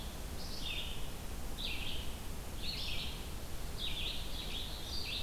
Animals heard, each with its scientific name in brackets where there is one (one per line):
Black-throated Blue Warbler (Setophaga caerulescens)
Red-eyed Vireo (Vireo olivaceus)